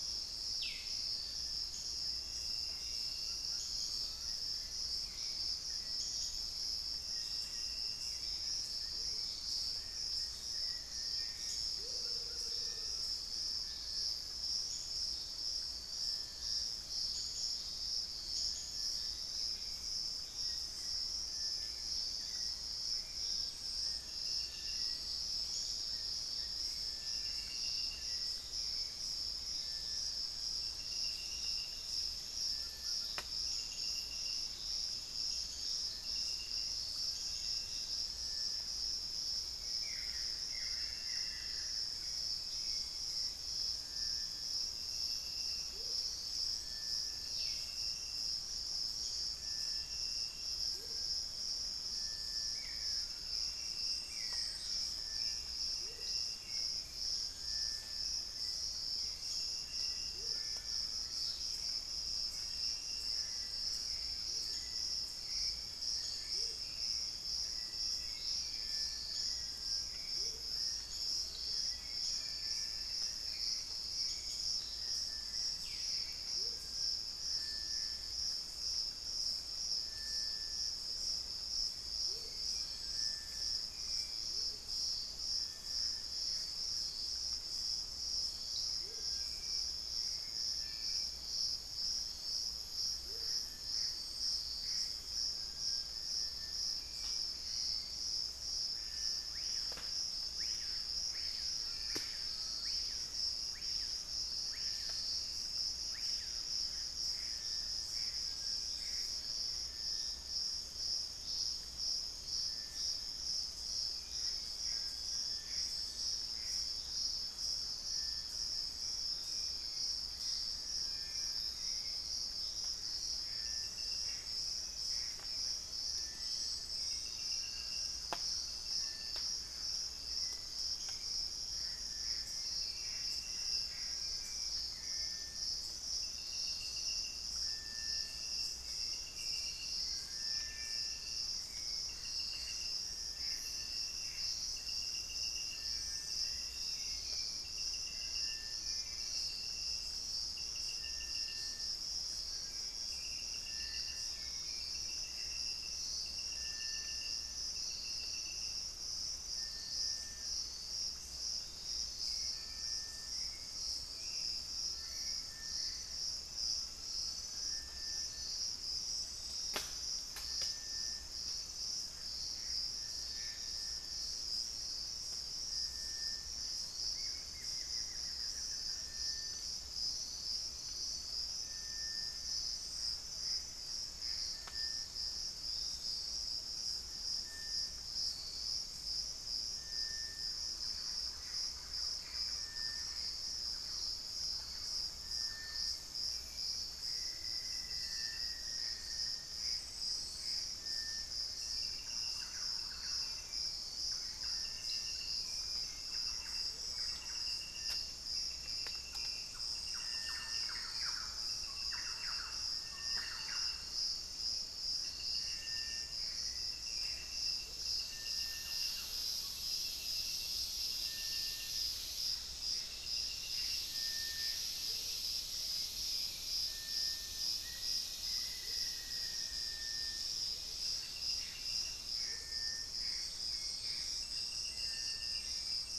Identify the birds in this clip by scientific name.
Crypturellus soui, unidentified bird, Nystalus obamai, Momotus momota, Turdus hauxwelli, Xiphorhynchus guttatus, Cercomacra cinerascens, Lipaugus vociferans, Campylorhynchus turdinus, Legatus leucophaius, Tinamus major, Dendrocolaptes certhia, Piculus leucolaemus, Formicarius analis